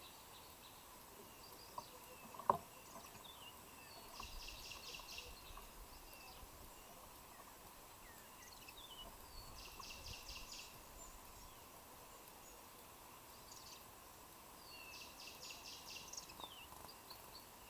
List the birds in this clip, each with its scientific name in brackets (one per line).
Cinnamon Bracken-Warbler (Bradypterus cinnamomeus)
Kikuyu White-eye (Zosterops kikuyuensis)